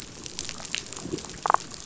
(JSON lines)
{"label": "biophony, damselfish", "recorder": "SoundTrap 500"}